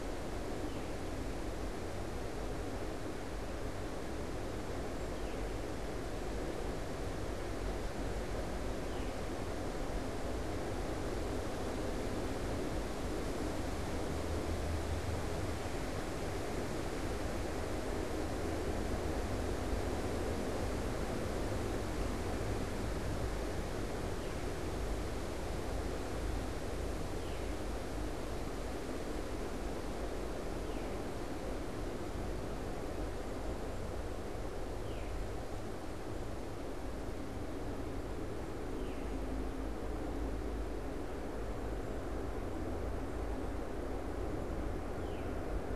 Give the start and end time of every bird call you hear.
[0.00, 9.73] Veery (Catharus fuscescens)
[24.03, 39.23] Veery (Catharus fuscescens)
[44.93, 45.63] Veery (Catharus fuscescens)

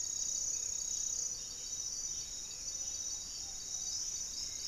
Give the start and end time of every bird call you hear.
[0.00, 1.14] Hauxwell's Thrush (Turdus hauxwelli)
[0.00, 4.67] Gray-fronted Dove (Leptotila rufaxilla)
[1.84, 3.44] Ruddy Pigeon (Patagioenas subvinacea)
[2.04, 3.74] unidentified bird
[2.64, 4.67] Hauxwell's Thrush (Turdus hauxwelli)

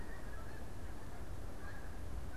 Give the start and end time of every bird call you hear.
[0.00, 2.36] Snow Goose (Anser caerulescens)

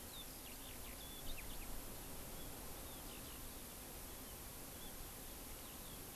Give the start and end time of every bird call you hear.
[0.00, 1.70] Eurasian Skylark (Alauda arvensis)
[2.30, 3.40] Eurasian Skylark (Alauda arvensis)
[4.00, 6.10] Eurasian Skylark (Alauda arvensis)

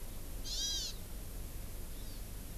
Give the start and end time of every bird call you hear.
[0.45, 1.05] Hawaiian Hawk (Buteo solitarius)
[1.95, 2.25] Hawaii Amakihi (Chlorodrepanis virens)

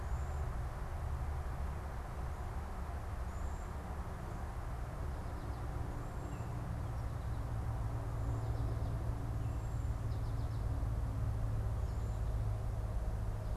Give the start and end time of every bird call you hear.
[0.00, 10.14] Cedar Waxwing (Bombycilla cedrorum)
[6.04, 6.54] Baltimore Oriole (Icterus galbula)
[9.94, 12.34] American Goldfinch (Spinus tristis)

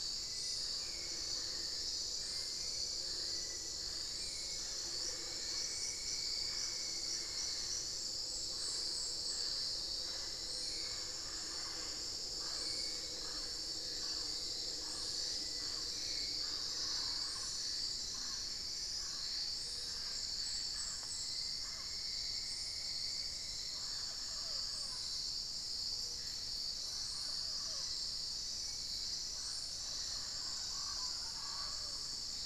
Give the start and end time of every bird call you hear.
[0.00, 23.90] Hauxwell's Thrush (Turdus hauxwelli)
[0.00, 32.40] Mealy Parrot (Amazona farinosa)
[4.90, 8.00] Cinnamon-throated Woodcreeper (Dendrexetastes rufigula)
[20.90, 24.00] Cinnamon-throated Woodcreeper (Dendrexetastes rufigula)

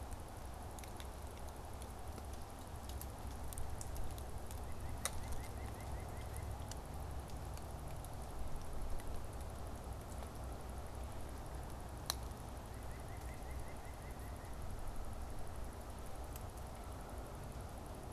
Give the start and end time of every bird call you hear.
[4.50, 6.60] White-breasted Nuthatch (Sitta carolinensis)
[12.50, 14.60] White-breasted Nuthatch (Sitta carolinensis)

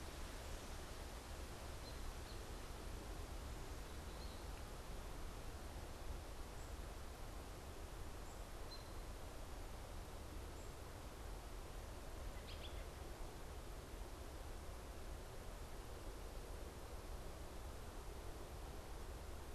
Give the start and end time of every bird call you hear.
[1.60, 12.90] American Robin (Turdus migratorius)

